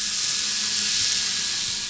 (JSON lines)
{"label": "anthrophony, boat engine", "recorder": "SoundTrap 500"}